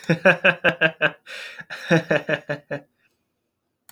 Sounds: Laughter